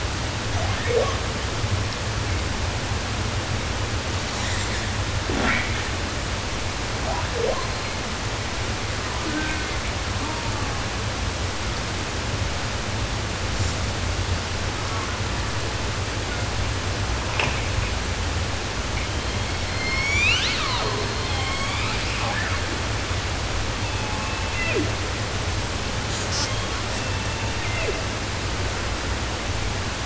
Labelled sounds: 0.4	1.4	killer whale, southern resident, J pod, call S02i, 0.31 to 3.9 kHz
3.9	5.1	killer whale, southern resident, 1.2 to 8.0 kHz
5.2	5.9	killer whale, 0.14 to 8.0 kHz
7.0	8.3	killer whale, southern resident, J pod, call S02i, 0.28 to 4.8 kHz
9.0	11.1	killer whale, southern resident, J pod, call S04, 0.14 to 4.4 kHz
13.4	13.9	killer whale, southern resident, 2.3 to 8.0 kHz
14.6	15.6	killer whale, 0.43 to 1.8 kHz
16.2	16.7	killer whale, 0.38 to 2.4 kHz
19.1	21.2	killer whale, southern resident, 0.10 to 8.0 kHz
21.2	22.3	killer whale, southern resident, J pod, call S01, 0.10 to 8.0 kHz
22.1	22.6	killer whale, 0.10 to 3.0 kHz
23.7	25.1	killer whale, southern resident, J pod, call S01, 0.17 to 3.7 kHz
26.1	28.2	killer whale, southern resident, J pod, call S05 and call S04, 0.21 to 8.0 kHz

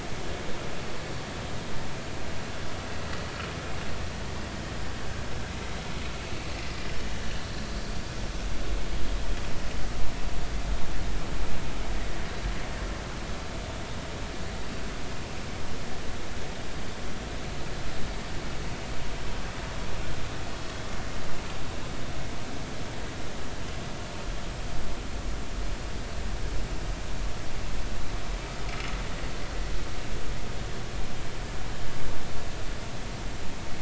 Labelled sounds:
6.6	6.9	vessel noise, 4.7 to 4.9 kHz

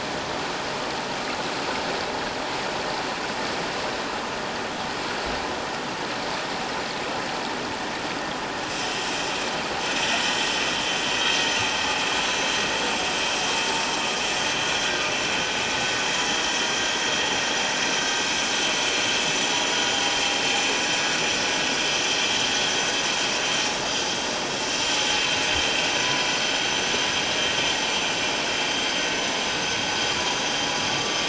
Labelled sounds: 14.8	15.1	vessel noise, 1.4 to 1.6 kHz
28.7	28.9	vessel noise, 4.6 to 4.8 kHz

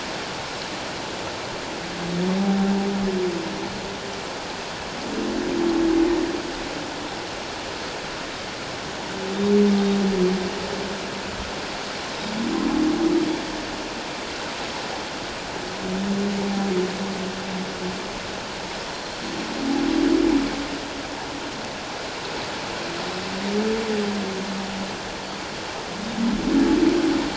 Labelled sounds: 2.4	2.7	humpback whale, 0.78 to 0.84 kHz

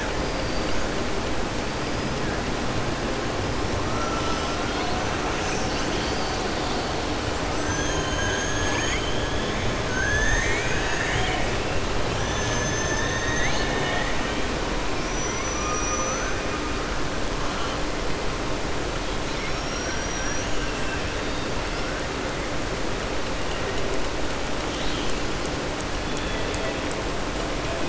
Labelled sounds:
9.8	11.5	killer whale, southern resident, 1.4 to 4.7 kHz
14.9	16.4	killer whale, southern resident, 0.52 to 6.1 kHz
19.2	21.0	killer whale, southern resident, 1.6 to 6.8 kHz
24.6	25.2	killer whale, southern resident, 2.5 to 4.8 kHz

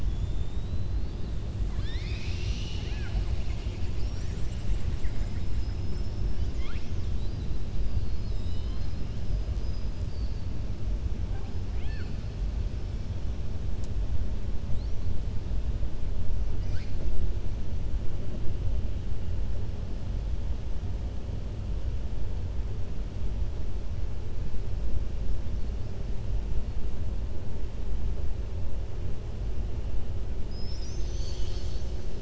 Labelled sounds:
5.5	6.2	killer whale, southern resident, 4.7 to 5.3 kHz
6.5	7.0	killer whale, southern resident, 1.1 to 6.5 kHz
11.6	12.2	killer whale, southern resident, 0.87 to 5.2 kHz

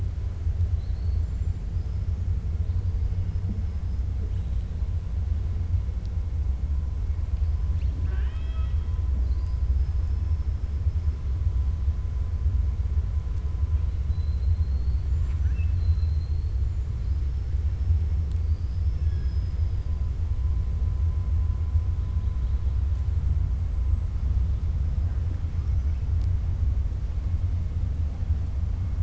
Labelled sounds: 0.7	2.2	killer whale, 3.9 to 7.7 kHz
9.1	9.6	killer whale, 4.0 to 5.2 kHz
14.0	16.6	killer whale, 1.1 to 7.5 kHz

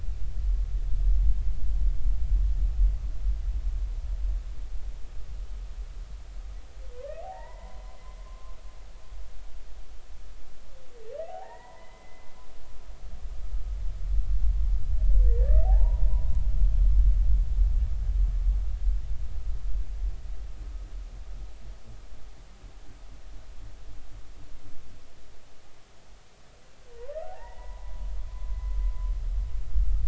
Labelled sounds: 7.2	8.6	humpback whale, 0.80 to 2.1 kHz
11.3	13.3	humpback whale, 0.80 to 2.1 kHz
15.6	16.0	humpback whale, 0.80 to 1.0 kHz
16.4	16.7	humpback whale, 1.6 to 2.0 kHz
27.2	28.6	humpback whale, 0.80 to 2.0 kHz

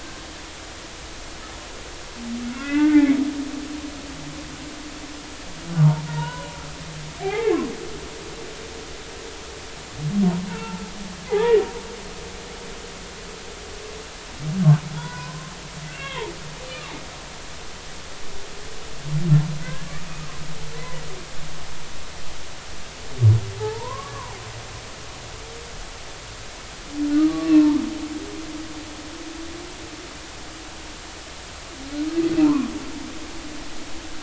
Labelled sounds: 2.5	3.2	humpback whale, 1.1 to 2.8 kHz
6.1	6.5	humpback whale, 0.86 to 1.5 kHz
7.2	7.6	humpback whale, 0.80 to 2.3 kHz
10.5	11.6	humpback whale, 0.80 to 2.0 kHz
14.9	15.5	humpback whale, 0.83 to 5.1 kHz
15.9	16.3	humpback whale, 0.83 to 3.9 kHz
19.6	19.9	humpback whale, 1.4 to 1.8 kHz
20.8	21.0	humpback whale, 1.9 to 2.1 kHz
23.6	24.4	humpback whale, 0.80 to 1.2 kHz
27.3	27.8	humpback whale, 0.86 to 2.8 kHz
32.4	32.7	humpback whale, 0.86 to 1.2 kHz

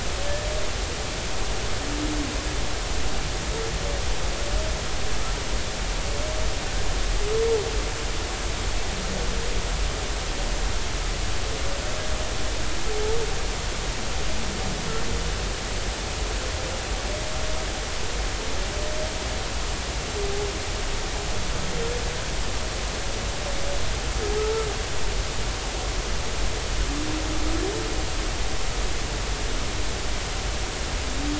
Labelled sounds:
24.4	24.7	humpback whale, 1.2 to 1.4 kHz

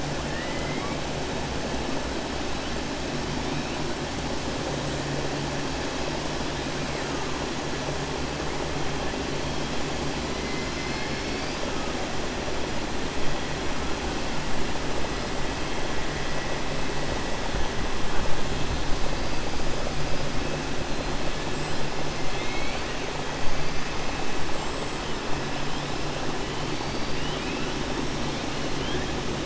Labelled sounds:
0.2	1.0	killer whale, 1.1 to 3.1 kHz
22.2	23.0	killer whale, 1.9 to 4.5 kHz

